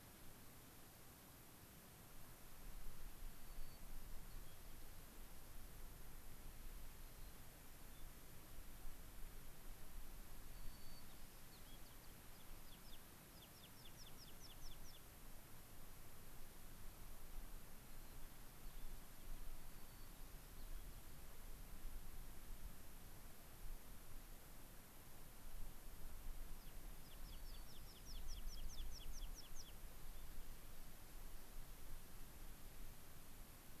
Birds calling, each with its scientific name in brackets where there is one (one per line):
American Pipit (Anthus rubescens)
White-crowned Sparrow (Zonotrichia leucophrys)